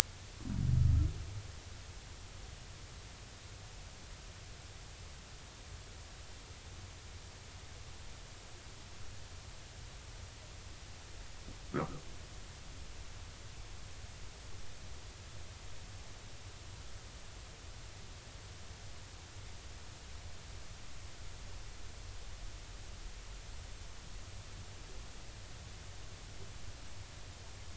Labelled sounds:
11.7	12.0	humpback whale, 0.96 to 1.7 kHz

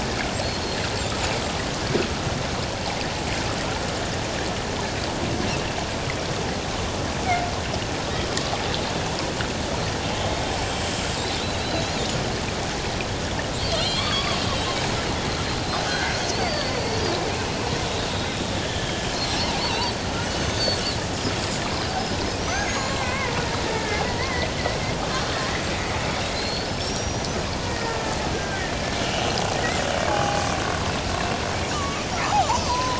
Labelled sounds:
11.5	12.0	killer whale, Bigg's (transient), 3.8 to 4.3 kHz
13.6	14.4	killer whale, Bigg's (transient), 1.0 to 4.7 kHz
15.9	16.7	killer whale, Bigg's (transient), 1.4 to 4.7 kHz
18.1	19.9	killer whale, Bigg's (transient), 0.78 to 3.9 kHz
20.4	20.8	killer whale, Bigg's (transient), 4.2 to 6.4 kHz
22.4	23.4	killer whale, Bigg's (transient), 0.94 to 7.2 kHz
23.7	24.5	killer whale, Bigg's (transient), 0.94 to 2.2 kHz
25.3	25.6	killer whale, Bigg's (transient), 1.8 to 2.1 kHz
26.3	27.4	killer whale, Bigg's (transient), 4.0 to 6.2 kHz
27.7	28.7	killer whale, Bigg's (transient), 1.5 to 1.9 kHz
29.0	30.4	killer whale, Bigg's (transient), 0.78 to 3.1 kHz
31.7	32.8	killer whale, Bigg's (transient), 1.1 to 7.1 kHz

